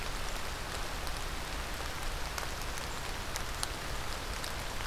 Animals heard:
forest ambience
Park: Marsh-Billings-Rockefeller National Historical Park